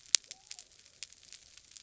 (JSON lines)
{"label": "biophony", "recorder": "SoundTrap 300"}